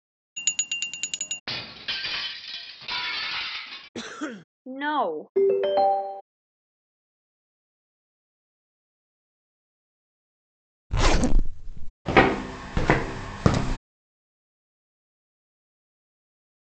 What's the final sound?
footsteps